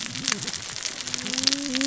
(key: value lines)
label: biophony, cascading saw
recorder: SoundTrap 600 or HydroMoth